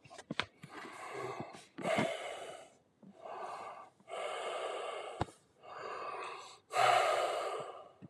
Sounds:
Sigh